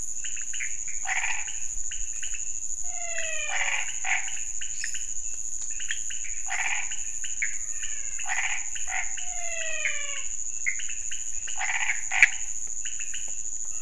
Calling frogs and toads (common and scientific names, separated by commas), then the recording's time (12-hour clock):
pointedbelly frog (Leptodactylus podicipinus), Chaco tree frog (Boana raniceps), menwig frog (Physalaemus albonotatus), lesser tree frog (Dendropsophus minutus)
1:15am